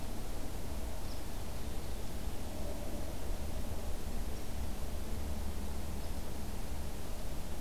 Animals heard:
forest ambience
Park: Acadia National Park